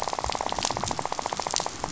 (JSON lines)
{"label": "biophony, rattle", "recorder": "SoundTrap 500"}